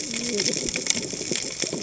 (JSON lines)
{"label": "biophony, cascading saw", "recorder": "HydroMoth"}